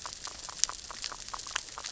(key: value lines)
label: biophony, grazing
recorder: SoundTrap 600 or HydroMoth